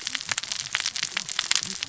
{"label": "biophony, cascading saw", "recorder": "SoundTrap 600 or HydroMoth"}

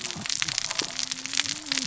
{"label": "biophony, cascading saw", "recorder": "SoundTrap 600 or HydroMoth"}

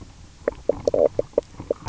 {"label": "biophony, knock croak", "recorder": "SoundTrap 300"}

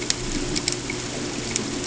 {"label": "ambient", "recorder": "HydroMoth"}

